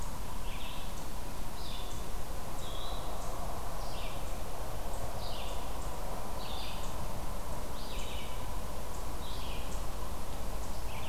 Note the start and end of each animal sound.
0.0s-11.1s: Red-eyed Vireo (Vireo olivaceus)
2.5s-3.1s: Eastern Wood-Pewee (Contopus virens)

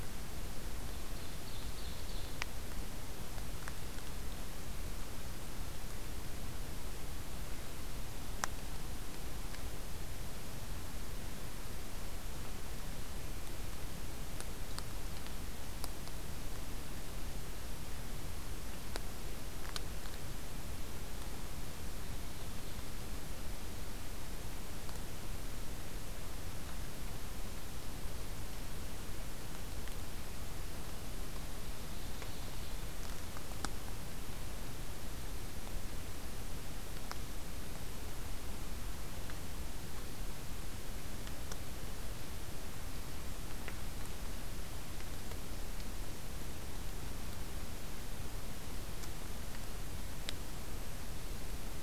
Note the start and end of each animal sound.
0.7s-2.5s: Ovenbird (Seiurus aurocapilla)
31.3s-32.9s: Ovenbird (Seiurus aurocapilla)

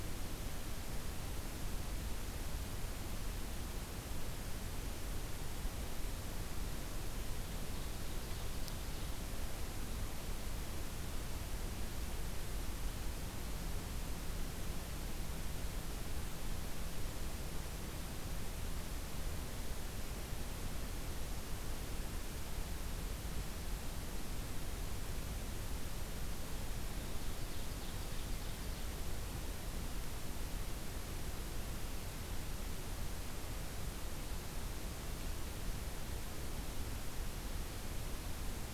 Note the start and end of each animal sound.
7.0s-9.2s: Ovenbird (Seiurus aurocapilla)
26.8s-29.0s: Ovenbird (Seiurus aurocapilla)

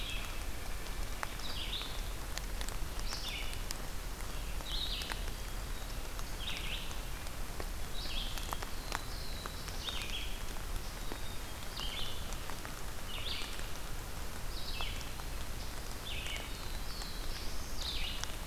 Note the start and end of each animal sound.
0.0s-18.5s: Red-eyed Vireo (Vireo olivaceus)
0.2s-1.3s: White-breasted Nuthatch (Sitta carolinensis)
8.6s-10.2s: Black-throated Blue Warbler (Setophaga caerulescens)
10.9s-12.0s: Black-capped Chickadee (Poecile atricapillus)
16.3s-17.9s: Black-throated Blue Warbler (Setophaga caerulescens)

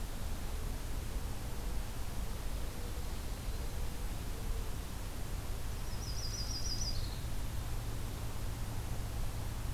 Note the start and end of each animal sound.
2.4s-4.9s: Mourning Dove (Zenaida macroura)
3.0s-3.8s: Yellow-rumped Warbler (Setophaga coronata)
5.7s-7.3s: Yellow-rumped Warbler (Setophaga coronata)

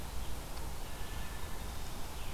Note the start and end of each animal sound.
0.8s-2.1s: Wood Thrush (Hylocichla mustelina)

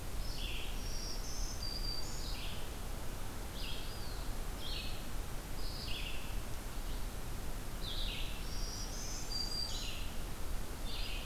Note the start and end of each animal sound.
0.0s-11.3s: Red-eyed Vireo (Vireo olivaceus)
0.7s-2.4s: Black-throated Green Warbler (Setophaga virens)
3.3s-4.3s: Eastern Wood-Pewee (Contopus virens)
8.2s-9.9s: Black-throated Green Warbler (Setophaga virens)
8.8s-10.0s: Blackburnian Warbler (Setophaga fusca)
10.7s-11.3s: Eastern Wood-Pewee (Contopus virens)

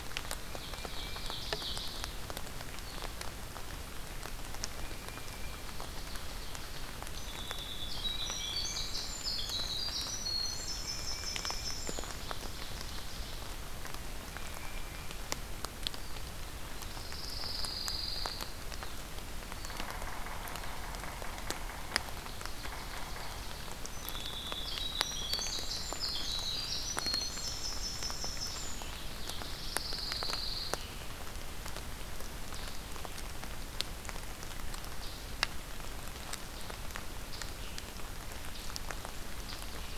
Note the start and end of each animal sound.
0.2s-2.5s: Ovenbird (Seiurus aurocapilla)
0.4s-1.5s: Tufted Titmouse (Baeolophus bicolor)
4.7s-5.7s: Tufted Titmouse (Baeolophus bicolor)
5.0s-7.0s: Ovenbird (Seiurus aurocapilla)
6.9s-12.5s: Winter Wren (Troglodytes hiemalis)
8.0s-9.1s: Tufted Titmouse (Baeolophus bicolor)
10.8s-12.0s: Tufted Titmouse (Baeolophus bicolor)
11.7s-13.9s: Ovenbird (Seiurus aurocapilla)
14.2s-15.3s: Tufted Titmouse (Baeolophus bicolor)
16.7s-18.9s: Pine Warbler (Setophaga pinus)
19.7s-23.5s: Yellow-bellied Sapsucker (Sphyrapicus varius)
21.8s-24.0s: Ovenbird (Seiurus aurocapilla)
23.8s-29.4s: Winter Wren (Troglodytes hiemalis)
28.7s-31.0s: Pine Warbler (Setophaga pinus)
35.0s-40.0s: Scarlet Tanager (Piranga olivacea)

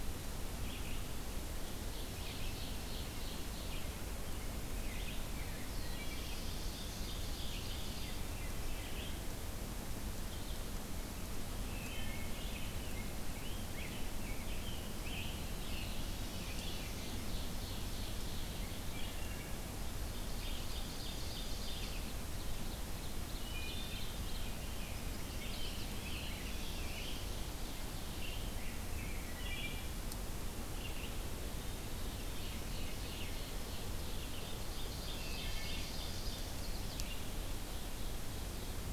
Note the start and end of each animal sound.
0.0s-26.8s: Red-eyed Vireo (Vireo olivaceus)
1.5s-4.1s: Ovenbird (Seiurus aurocapilla)
5.2s-7.0s: Black-throated Blue Warbler (Setophaga caerulescens)
5.6s-6.4s: Wood Thrush (Hylocichla mustelina)
6.3s-8.5s: Ovenbird (Seiurus aurocapilla)
11.5s-12.4s: Wood Thrush (Hylocichla mustelina)
12.7s-16.9s: Rose-breasted Grosbeak (Pheucticus ludovicianus)
15.3s-17.2s: Black-throated Blue Warbler (Setophaga caerulescens)
16.3s-18.7s: Ovenbird (Seiurus aurocapilla)
18.8s-19.6s: Wood Thrush (Hylocichla mustelina)
19.9s-24.6s: Ovenbird (Seiurus aurocapilla)
23.2s-24.1s: Wood Thrush (Hylocichla mustelina)
24.8s-26.0s: Chestnut-sided Warbler (Setophaga pensylvanica)
25.0s-27.3s: Scarlet Tanager (Piranga olivacea)
25.9s-27.5s: Black-throated Blue Warbler (Setophaga caerulescens)
27.9s-29.6s: Scarlet Tanager (Piranga olivacea)
28.0s-37.5s: Red-eyed Vireo (Vireo olivaceus)
29.1s-30.0s: Wood Thrush (Hylocichla mustelina)
31.8s-36.6s: Ovenbird (Seiurus aurocapilla)
35.1s-35.8s: Wood Thrush (Hylocichla mustelina)

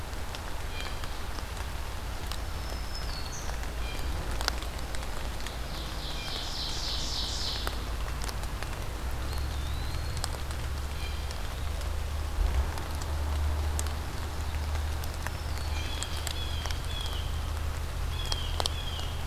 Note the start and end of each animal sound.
0.0s-4.2s: Blue Jay (Cyanocitta cristata)
2.3s-3.7s: Black-throated Green Warbler (Setophaga virens)
5.0s-7.9s: Ovenbird (Seiurus aurocapilla)
6.1s-6.5s: Blue Jay (Cyanocitta cristata)
9.0s-10.5s: Eastern Wood-Pewee (Contopus virens)
10.7s-11.4s: Blue Jay (Cyanocitta cristata)
14.7s-16.0s: Black-throated Green Warbler (Setophaga virens)
15.5s-19.2s: Blue Jay (Cyanocitta cristata)

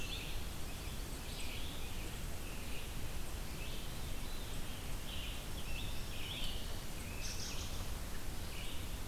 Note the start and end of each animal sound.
0.0s-9.1s: Red-eyed Vireo (Vireo olivaceus)
3.4s-4.9s: Veery (Catharus fuscescens)
4.9s-7.4s: Scarlet Tanager (Piranga olivacea)
7.1s-7.9s: American Robin (Turdus migratorius)

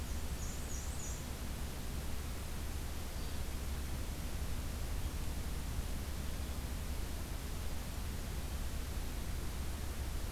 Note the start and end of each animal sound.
0.0s-1.4s: Black-and-white Warbler (Mniotilta varia)
3.1s-3.5s: Blue-headed Vireo (Vireo solitarius)

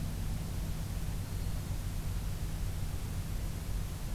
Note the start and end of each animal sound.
1.2s-1.8s: Black-throated Green Warbler (Setophaga virens)

